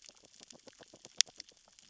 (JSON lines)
{"label": "biophony, grazing", "recorder": "SoundTrap 600 or HydroMoth"}